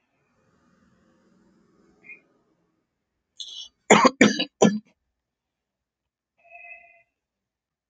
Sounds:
Cough